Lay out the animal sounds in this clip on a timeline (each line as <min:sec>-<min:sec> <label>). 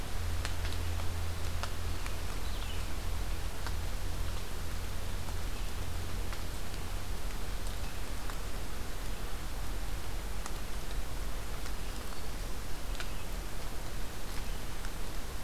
0:02.2-0:02.8 Red-eyed Vireo (Vireo olivaceus)
0:11.5-0:12.6 Black-throated Green Warbler (Setophaga virens)